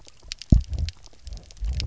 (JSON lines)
{"label": "biophony, double pulse", "recorder": "SoundTrap 300"}